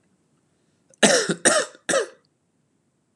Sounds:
Cough